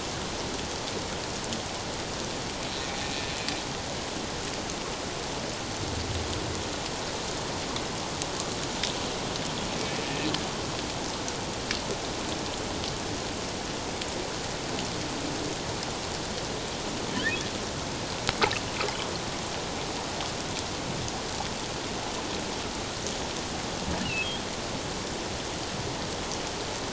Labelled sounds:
3.0	3.2	humpback whale, 2.3 to 2.6 kHz
17.1	17.4	humpback whale, 2.9 to 3.8 kHz
24.0	24.3	humpback whale, 2.5 to 3.0 kHz

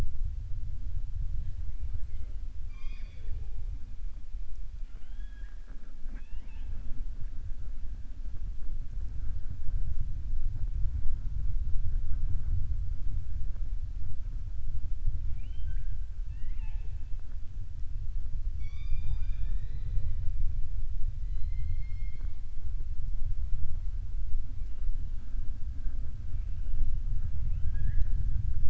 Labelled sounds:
4.8	5.9	killer whale, southern resident, 0.45 to 3.4 kHz
15.2	17.0	killer whale, southern resident, 0.46 to 3.5 kHz

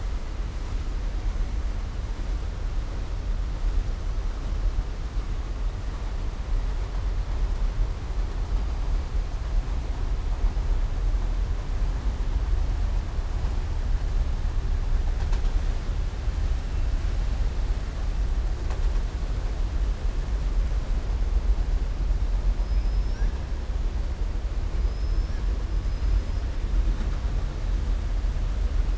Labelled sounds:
24.8	25.4	killer whale, southern resident, 4.5 to 5.7 kHz

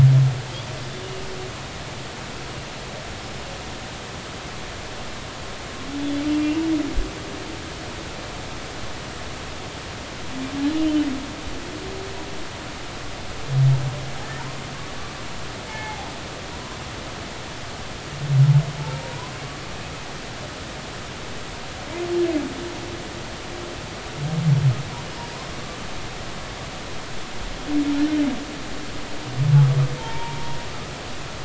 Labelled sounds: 10.7	11.0	humpback whale, 2.7 to 2.9 kHz
15.7	16.1	humpback whale, 0.80 to 2.2 kHz
16.5	16.8	humpback whale, 0.93 to 1.1 kHz
18.8	19.3	humpback whale, 0.83 to 1.1 kHz
30.0	30.4	humpback whale, 0.86 to 0.99 kHz

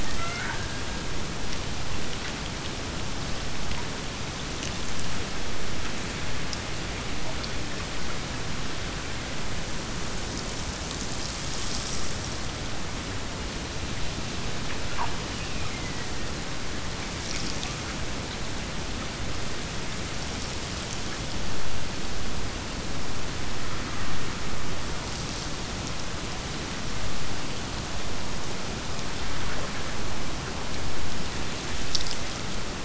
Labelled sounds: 0.0	1.6	killer whale, Bigg's (transient), Gulf of Alaska transient, 0.48 to 2.4 kHz
15.0	16.4	killer whale, Bigg's (transient), Gulf of Alaska transient, 1.7 to 3.1 kHz

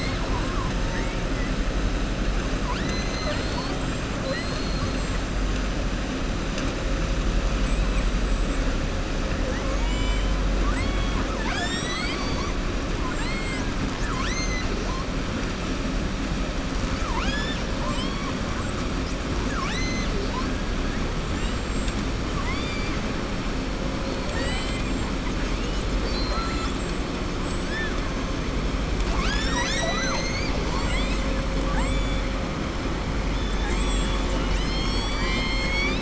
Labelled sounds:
2.6	3.8	killer whale, southern resident, 0.61 to 7.5 kHz
4.2	5.0	killer whale, southern resident, 0.54 to 4.8 kHz
9.4	10.3	killer whale, southern resident, 0.55 to 3.5 kHz
10.5	12.5	killer whale, southern resident, 0.75 to 7.9 kHz
12.9	14.7	killer whale, southern resident, 0.91 to 8.0 kHz
16.9	18.3	killer whale, southern resident, 0.59 to 7.5 kHz
19.4	20.1	killer whale, southern resident, 0.96 to 7.9 kHz
21.2	22.0	killer whale, southern resident, 6.5 to 7.8 kHz
22.3	22.9	killer whale, southern resident, 0.96 to 5.2 kHz
24.0	25.1	killer whale, southern resident, 0.54 to 8.0 kHz
25.9	26.9	killer whale, southern resident, 0.63 to 8.0 kHz
33.3	34.4	killer whale, southern resident, 0.83 to 8.0 kHz

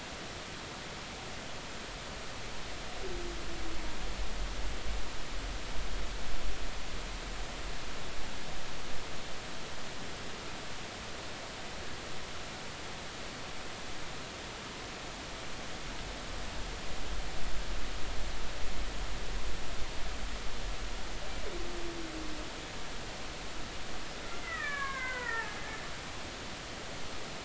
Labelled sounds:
24.4	25.6	killer whale, Bigg's (transient), 0.83 to 2.7 kHz

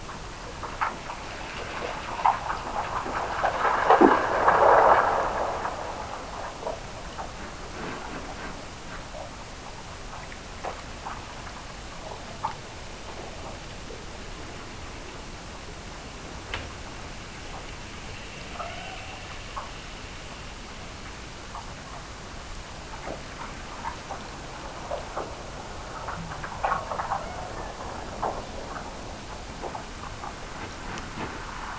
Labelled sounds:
18.5	19.9	killer whale, Bigg's (transient), Gulf of Alaska transient, 0.44 to 1.8 kHz
27.1	28.2	killer whale, Bigg's (transient), Gulf of Alaska transient, 1.2 to 2.3 kHz

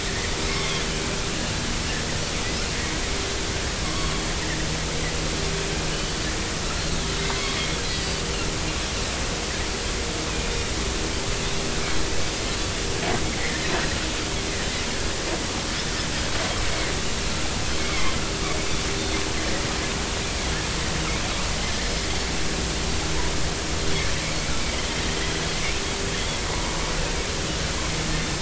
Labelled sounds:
0.6	0.8	Pacific white-sided dolphin, 3.1 to 3.6 kHz
3.8	4.1	Pacific white-sided dolphin, 1.0 to 1.2 kHz
5.9	6.2	Pacific white-sided dolphin, 4.4 to 4.6 kHz
7.9	8.2	Pacific white-sided dolphin, 4.8 to 5.0 kHz
13.4	13.7	Pacific white-sided dolphin, 1.7 to 2.2 kHz
16.6	16.9	Pacific white-sided dolphin, 2.0 to 2.4 kHz
17.7	18.1	Pacific white-sided dolphin, 2.0 to 2.4 kHz
26.5	26.7	Pacific white-sided dolphin, 0.93 to 1.2 kHz

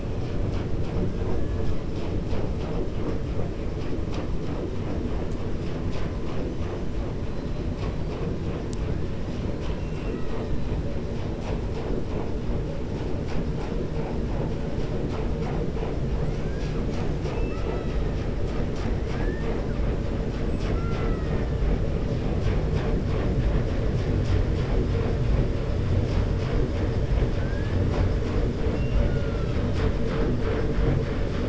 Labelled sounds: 20.4	21.4	killer whale, 1.0 to 7.9 kHz

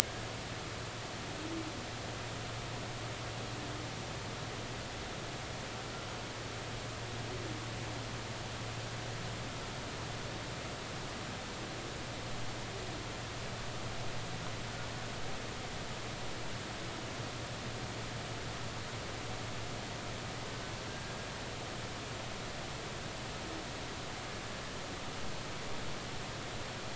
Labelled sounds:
20.9	21.3	humpback whale, 1.5 to 1.7 kHz

